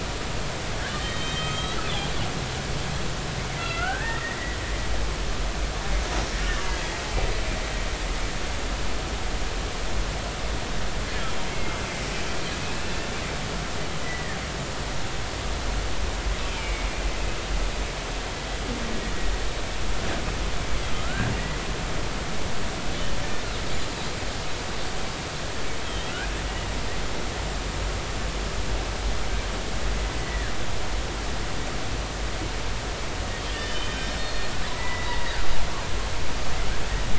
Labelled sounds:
0.9	1.8	killer whale, Bigg's (transient), 1.2 to 4.4 kHz
3.6	4.4	killer whale, Bigg's (transient), 1.3 to 2.9 kHz
6.6	7.0	killer whale, Bigg's (transient), 1.9 to 2.1 kHz
11.5	11.8	killer whale, Bigg's (transient), 2.1 to 2.2 kHz
12.6	13.1	killer whale, Bigg's (transient), 2.4 to 2.8 kHz
14.0	14.4	killer whale, Bigg's (transient), 1.6 to 2.0 kHz
16.5	16.9	killer whale, Bigg's (transient), 2.1 to 2.5 kHz
20.9	21.3	killer whale, Bigg's (transient), 1.2 to 1.7 kHz
25.8	26.1	killer whale, Bigg's (transient), 3.0 to 3.3 kHz
30.2	30.5	killer whale, Bigg's (transient), 1.5 to 2.0 kHz
33.5	35.2	killer whale, Bigg's (transient), 0.86 to 5.5 kHz

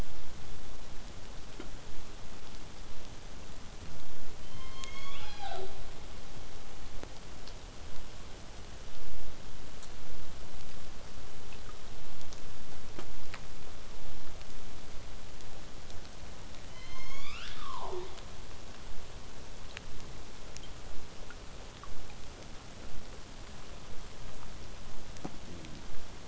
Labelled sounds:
4.4	5.9	killer whale, southern resident, J pod, call S01, 0.29 to 8.0 kHz
16.6	18.3	killer whale, southern resident, J pod, call S01, 0.18 to 8.0 kHz

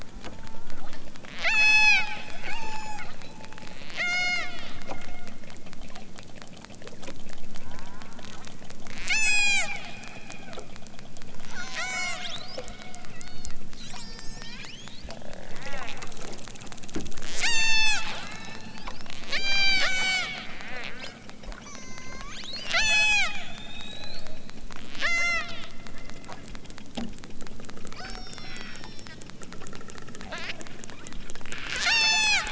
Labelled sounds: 0.0	1.0	killer whale, southern Alaska resident, 0.41 to 1.8 kHz
1.4	2.1	killer whale, southern Alaska resident, 0.46 to 8.0 kHz
2.4	4.8	killer whale, southern Alaska resident, 0.37 to 8.0 kHz
7.6	8.5	killer whale, southern Alaska resident, 0.51 to 2.2 kHz
8.8	9.7	killer whale, southern Alaska resident, 0.60 to 8.0 kHz
10.2	10.7	killer whale, southern Alaska resident, 0.74 to 3.5 kHz
11.3	12.6	killer whale, southern Alaska resident, 0.51 to 8.0 kHz
13.2	15.1	killer whale, southern Alaska resident, 0.32 to 8.0 kHz
15.5	16.2	killer whale, southern Alaska resident, 0.41 to 3.2 kHz
17.3	24.3	killer whale, southern Alaska resident, 0.23 to 8.0 kHz
24.9	25.6	killer whale, southern Alaska resident, 0.37 to 8.0 kHz
27.9	29.2	killer whale, southern Alaska resident, 0.32 to 8.0 kHz
30.2	30.6	killer whale, southern Alaska resident, 0.69 to 6.9 kHz
31.7	32.5	killer whale, southern Alaska resident, 0.32 to 8.0 kHz

